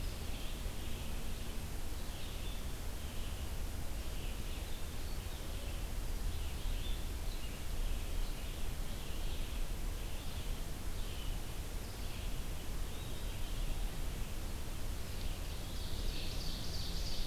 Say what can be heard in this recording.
Red-eyed Vireo, Ovenbird